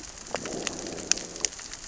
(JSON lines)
{"label": "biophony, growl", "recorder": "SoundTrap 600 or HydroMoth"}